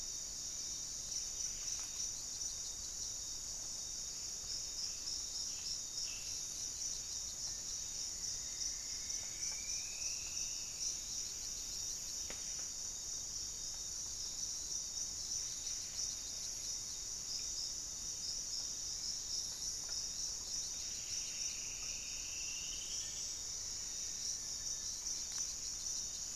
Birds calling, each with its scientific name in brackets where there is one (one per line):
Buff-breasted Wren (Cantorchilus leucotis)
Striped Woodcreeper (Xiphorhynchus obsoletus)
Black-faced Antthrush (Formicarius analis)
unidentified bird